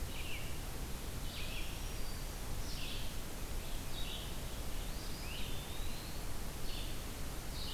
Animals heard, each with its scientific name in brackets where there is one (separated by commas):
Black-throated Green Warbler (Setophaga virens), Great Crested Flycatcher (Myiarchus crinitus), Red-eyed Vireo (Vireo olivaceus), Eastern Wood-Pewee (Contopus virens)